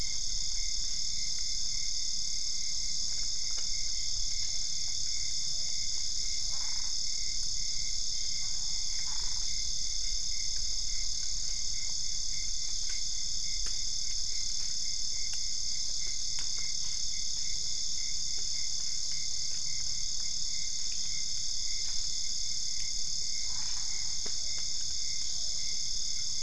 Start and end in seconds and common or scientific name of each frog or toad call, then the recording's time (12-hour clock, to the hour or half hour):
4.4	6.6	Physalaemus cuvieri
6.4	7.1	Boana albopunctata
9.0	9.5	Boana albopunctata
23.5	24.1	Boana albopunctata
24.3	25.6	Physalaemus cuvieri
~1am